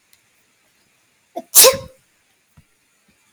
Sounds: Sneeze